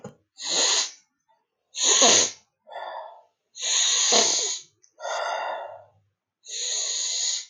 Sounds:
Sniff